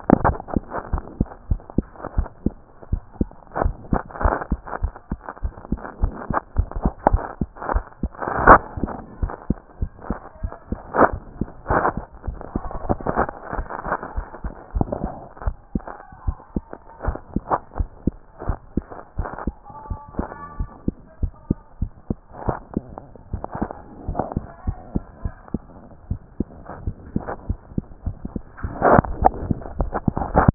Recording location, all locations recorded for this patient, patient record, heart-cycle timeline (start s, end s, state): mitral valve (MV)
aortic valve (AV)+pulmonary valve (PV)+tricuspid valve (TV)+mitral valve (MV)
#Age: Child
#Sex: Male
#Height: 103.0 cm
#Weight: 18.8 kg
#Pregnancy status: False
#Murmur: Absent
#Murmur locations: nan
#Most audible location: nan
#Systolic murmur timing: nan
#Systolic murmur shape: nan
#Systolic murmur grading: nan
#Systolic murmur pitch: nan
#Systolic murmur quality: nan
#Diastolic murmur timing: nan
#Diastolic murmur shape: nan
#Diastolic murmur grading: nan
#Diastolic murmur pitch: nan
#Diastolic murmur quality: nan
#Outcome: Abnormal
#Campaign: 2014 screening campaign
0.00	17.78	unannotated
17.78	17.88	S1
17.88	18.06	systole
18.06	18.14	S2
18.14	18.46	diastole
18.46	18.58	S1
18.58	18.76	systole
18.76	18.84	S2
18.84	19.18	diastole
19.18	19.28	S1
19.28	19.46	systole
19.46	19.56	S2
19.56	19.88	diastole
19.88	20.00	S1
20.00	20.18	systole
20.18	20.26	S2
20.26	20.58	diastole
20.58	20.70	S1
20.70	20.86	systole
20.86	20.96	S2
20.96	21.22	diastole
21.22	21.32	S1
21.32	21.48	systole
21.48	21.58	S2
21.58	21.80	diastole
21.80	21.92	S1
21.92	22.08	systole
22.08	22.18	S2
22.18	22.45	diastole
22.45	30.54	unannotated